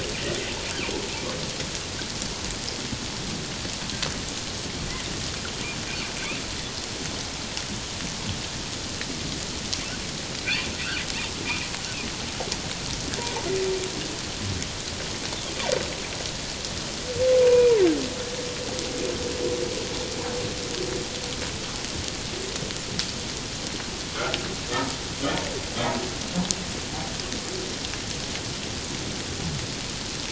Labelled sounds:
10.5	10.7	humpback whale, 2.3 to 2.8 kHz
13.2	13.5	humpback whale, 0.81 to 1.0 kHz
17.4	17.8	humpback whale, 0.91 to 2.5 kHz

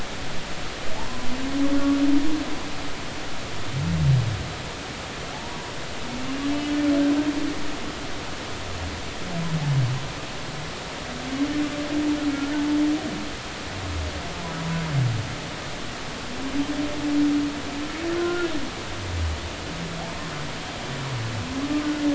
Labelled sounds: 0.9	1.3	humpback whale, 0.80 to 1.1 kHz
5.3	5.7	humpback whale, 0.80 to 1.0 kHz
6.5	6.8	humpback whale, 2.9 to 3.0 kHz
12.3	12.6	humpback whale, 1.3 to 1.6 kHz
14.6	14.8	humpback whale, 0.96 to 1.0 kHz
18.2	18.5	humpback whale, 1.3 to 1.5 kHz

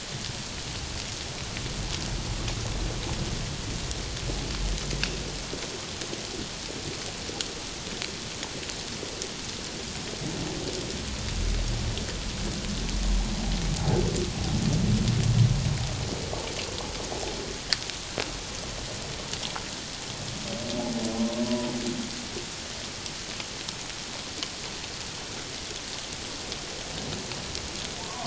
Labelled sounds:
13.8	14.0	humpback whale, 0.78 to 0.91 kHz

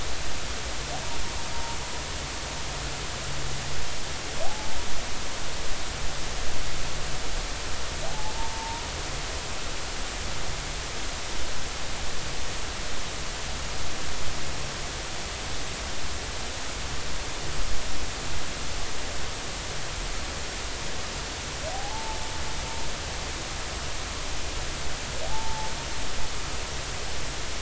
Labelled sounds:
4.4	4.7	humpback whale, 0.80 to 0.90 kHz
8.1	8.9	humpback whale, 0.80 to 1.0 kHz
21.7	22.2	humpback whale, 0.80 to 0.93 kHz
25.2	25.7	humpback whale, 0.80 to 0.96 kHz

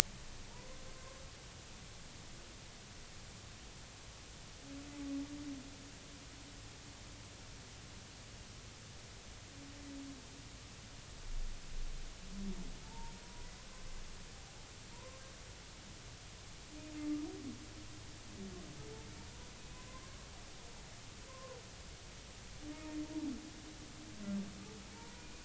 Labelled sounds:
0.9	1.2	humpback whale, 0.99 to 1.1 kHz
12.8	13.5	humpback whale, 0.83 to 1.0 kHz
14.9	15.2	humpback whale, 0.90 to 1.1 kHz
19.6	20.3	humpback whale, 0.99 to 2.6 kHz
21.3	21.6	humpback whale, 0.93 to 1.1 kHz
24.9	25.2	humpback whale, 0.86 to 0.99 kHz

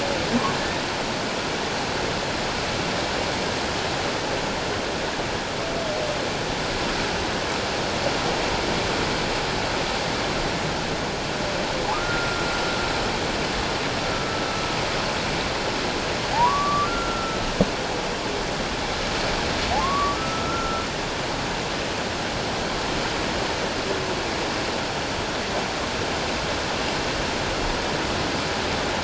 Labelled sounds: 11.9	12.4	humpback whale, 0.97 to 1.5 kHz
14.1	14.4	humpback whale, 1.3 to 1.4 kHz
16.3	17.5	humpback whale, 0.78 to 1.4 kHz
19.8	20.8	humpback whale, 1.0 to 1.4 kHz

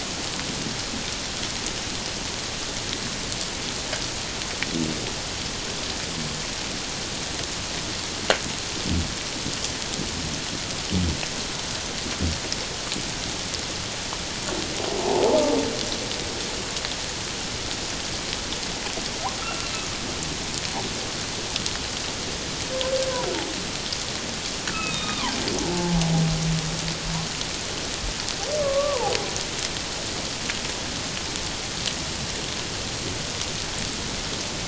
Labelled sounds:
15.0	15.4	humpback whale, 0.78 to 1.0 kHz
19.4	19.7	humpback whale, 1.2 to 2.9 kHz
24.7	25.4	humpback whale, 0.78 to 3.8 kHz
25.7	26.0	humpback whale, 0.78 to 0.91 kHz
28.6	29.1	humpback whale, 0.78 to 1.2 kHz

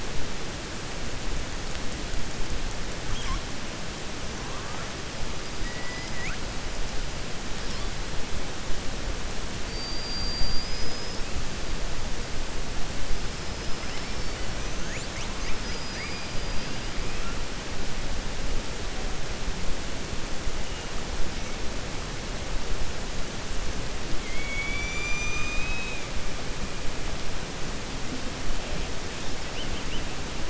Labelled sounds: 5.5	6.4	killer whale, 1.3 to 2.6 kHz
9.6	11.2	killer whale, 4.5 to 5.8 kHz
24.1	26.0	killer whale, 2.1 to 7.2 kHz

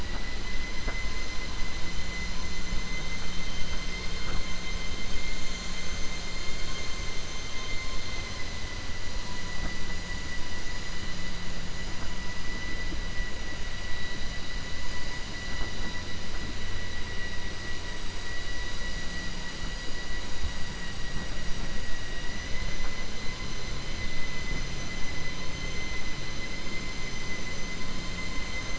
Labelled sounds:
21.9	22.4	vessel noise, 0.97 to 2.9 kHz

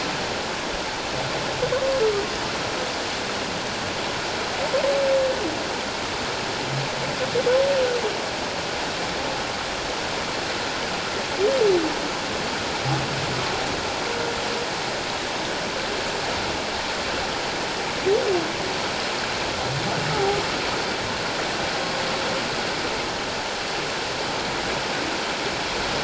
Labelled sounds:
20.1	20.4	humpback whale, 0.78 to 0.91 kHz

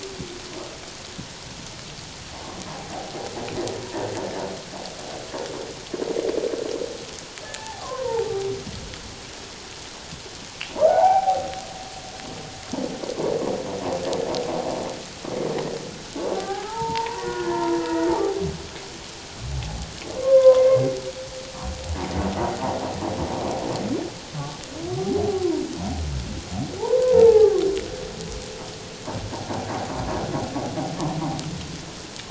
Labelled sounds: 7.4	8.3	humpback whale, 0.78 to 1.8 kHz
10.8	11.4	humpback whale, 0.78 to 1.6 kHz
16.4	18.1	humpback whale, 0.78 to 2.0 kHz
20.2	20.7	humpback whale, 0.94 to 1.6 kHz
26.8	27.6	humpback whale, 0.78 to 1.2 kHz

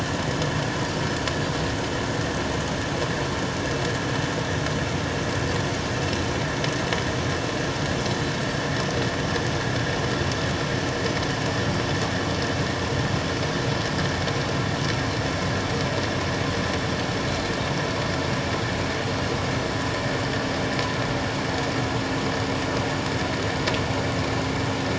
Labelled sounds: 17.3	17.5	Pacific white-sided dolphin, 3.9 to 4.2 kHz

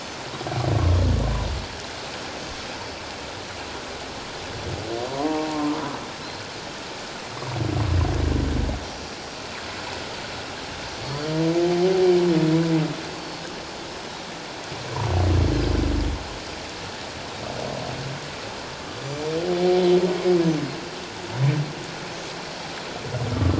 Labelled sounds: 5.1	5.8	humpback whale, 0.78 to 1.2 kHz
13.1	13.4	Pacific white-sided dolphin, 4.3 to 4.7 kHz
19.0	19.4	Pacific white-sided dolphin, 5.8 to 7.2 kHz

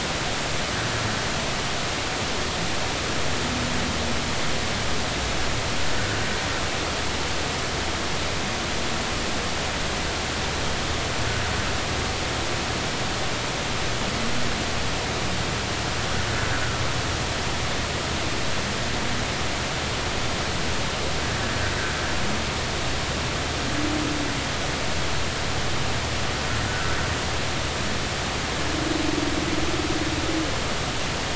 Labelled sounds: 26.6	26.9	humpback whale, 1.3 to 1.6 kHz

